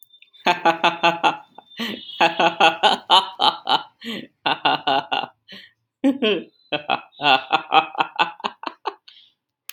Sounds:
Laughter